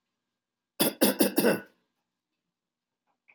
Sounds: Cough